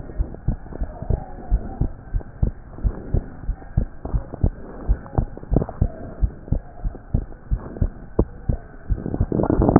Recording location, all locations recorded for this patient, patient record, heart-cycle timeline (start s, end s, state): pulmonary valve (PV)
aortic valve (AV)+pulmonary valve (PV)+tricuspid valve (TV)+mitral valve (MV)
#Age: Child
#Sex: Male
#Height: 123.0 cm
#Weight: 25.6 kg
#Pregnancy status: False
#Murmur: Absent
#Murmur locations: nan
#Most audible location: nan
#Systolic murmur timing: nan
#Systolic murmur shape: nan
#Systolic murmur grading: nan
#Systolic murmur pitch: nan
#Systolic murmur quality: nan
#Diastolic murmur timing: nan
#Diastolic murmur shape: nan
#Diastolic murmur grading: nan
#Diastolic murmur pitch: nan
#Diastolic murmur quality: nan
#Outcome: Normal
#Campaign: 2015 screening campaign
0.00	0.16	diastole
0.16	0.28	S1
0.28	0.44	systole
0.44	0.58	S2
0.58	0.78	diastole
0.78	0.90	S1
0.90	1.06	systole
1.06	1.20	S2
1.20	1.50	diastole
1.50	1.64	S1
1.64	1.78	systole
1.78	1.92	S2
1.92	2.12	diastole
2.12	2.22	S1
2.22	2.40	systole
2.40	2.54	S2
2.54	2.82	diastole
2.82	2.96	S1
2.96	3.12	systole
3.12	3.24	S2
3.24	3.46	diastole
3.46	3.56	S1
3.56	3.76	systole
3.76	3.88	S2
3.88	4.12	diastole
4.12	4.24	S1
4.24	4.42	systole
4.42	4.56	S2
4.56	4.84	diastole
4.84	5.00	S1
5.00	5.16	systole
5.16	5.30	S2
5.30	5.50	diastole
5.50	5.66	S1
5.66	5.79	systole
5.79	5.92	S2
5.92	6.18	diastole
6.18	6.32	S1
6.32	6.49	systole
6.49	6.64	S2
6.64	6.82	diastole
6.82	6.94	S1
6.94	7.10	systole
7.10	7.24	S2
7.24	7.49	diastole
7.49	7.62	S1
7.62	7.78	systole
7.78	7.92	S2
7.92	8.16	diastole
8.16	8.28	S1
8.28	8.46	systole
8.46	8.62	S2
8.62	8.80	diastole